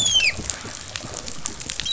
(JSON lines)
{"label": "biophony, dolphin", "recorder": "SoundTrap 500"}